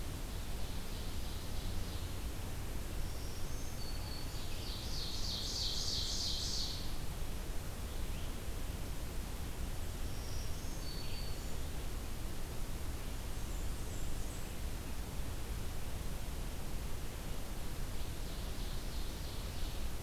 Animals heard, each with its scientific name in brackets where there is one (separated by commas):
Ovenbird (Seiurus aurocapilla), Black-throated Green Warbler (Setophaga virens), Blackburnian Warbler (Setophaga fusca)